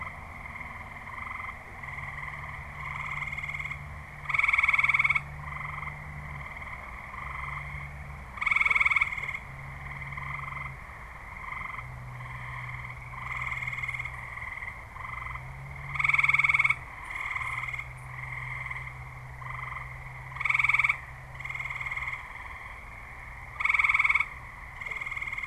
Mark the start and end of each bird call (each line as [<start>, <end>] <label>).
[16.39, 18.19] unidentified bird